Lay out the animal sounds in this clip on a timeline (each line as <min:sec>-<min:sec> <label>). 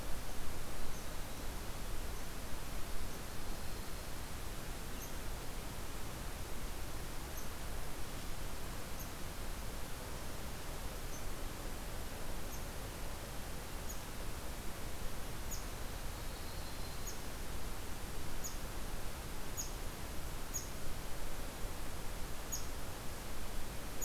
0:02.8-0:04.2 Yellow-rumped Warbler (Setophaga coronata)
0:04.8-0:14.0 Red Squirrel (Tamiasciurus hudsonicus)
0:15.4-0:24.0 Red Squirrel (Tamiasciurus hudsonicus)
0:16.0-0:17.1 Yellow-rumped Warbler (Setophaga coronata)